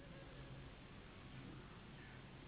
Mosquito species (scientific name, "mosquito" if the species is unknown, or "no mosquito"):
Anopheles gambiae s.s.